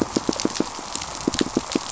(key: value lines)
label: biophony, pulse
recorder: SoundTrap 500